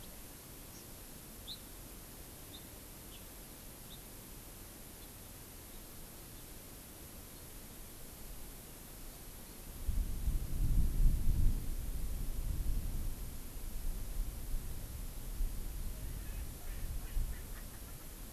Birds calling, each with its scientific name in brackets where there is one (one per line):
House Finch (Haemorhous mexicanus)